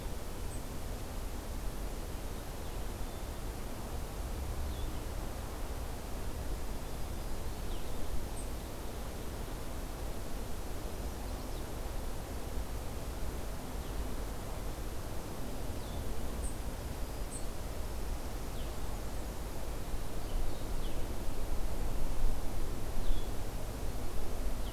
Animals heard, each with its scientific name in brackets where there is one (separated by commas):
unidentified call, Black-capped Chickadee (Poecile atricapillus), Blue-headed Vireo (Vireo solitarius), Chestnut-sided Warbler (Setophaga pensylvanica)